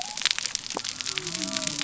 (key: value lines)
label: biophony
recorder: SoundTrap 300